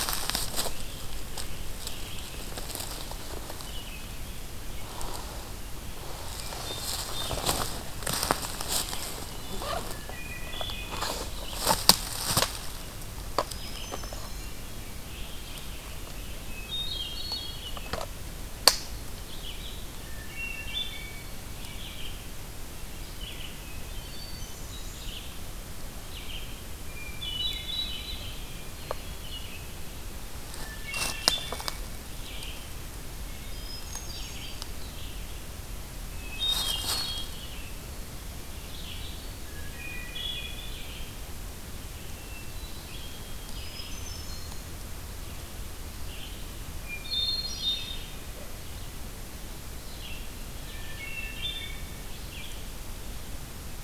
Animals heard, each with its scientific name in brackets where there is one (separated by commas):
Hermit Thrush (Catharus guttatus), Red-eyed Vireo (Vireo olivaceus)